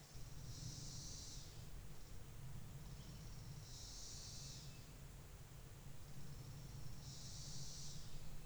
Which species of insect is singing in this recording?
Magicicada tredecassini